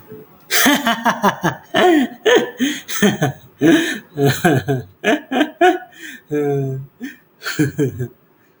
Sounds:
Laughter